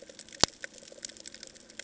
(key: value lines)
label: ambient
recorder: HydroMoth